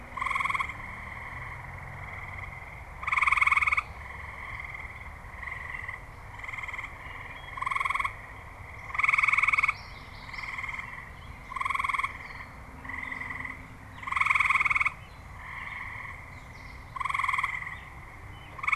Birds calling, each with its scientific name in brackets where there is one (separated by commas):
Common Yellowthroat (Geothlypis trichas), Wood Thrush (Hylocichla mustelina), Gray Catbird (Dumetella carolinensis)